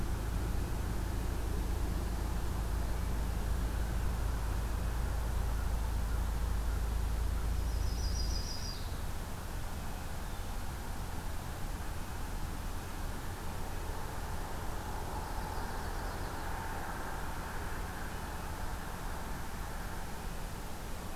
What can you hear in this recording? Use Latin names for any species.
Setophaga coronata, Catharus guttatus